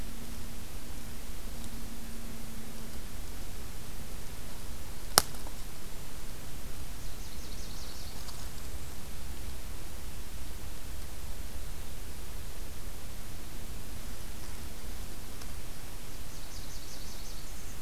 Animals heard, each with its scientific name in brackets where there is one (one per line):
Nashville Warbler (Leiothlypis ruficapilla)